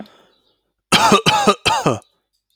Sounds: Cough